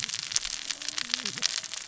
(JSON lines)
{"label": "biophony, cascading saw", "recorder": "SoundTrap 600 or HydroMoth"}